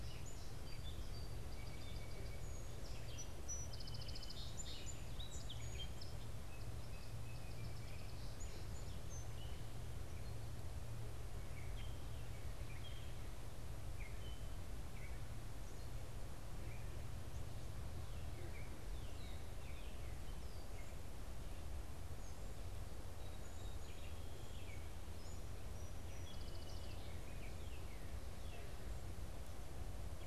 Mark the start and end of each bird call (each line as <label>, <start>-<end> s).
Song Sparrow (Melospiza melodia), 0.0-6.3 s
Gray Catbird (Dumetella carolinensis), 0.0-30.3 s
Song Sparrow (Melospiza melodia), 7.2-9.5 s
Song Sparrow (Melospiza melodia), 25.1-27.4 s